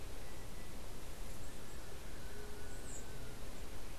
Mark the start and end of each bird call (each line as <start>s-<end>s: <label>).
2.1s-2.8s: White-tipped Dove (Leptotila verreauxi)